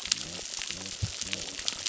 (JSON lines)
{"label": "biophony, crackle", "recorder": "SoundTrap 600"}
{"label": "biophony", "recorder": "SoundTrap 600"}